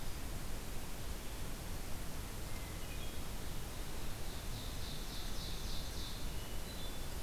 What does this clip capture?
Hermit Thrush, Ovenbird